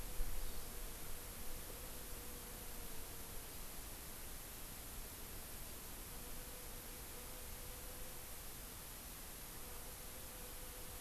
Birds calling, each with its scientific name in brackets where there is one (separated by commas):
Hawaii Amakihi (Chlorodrepanis virens)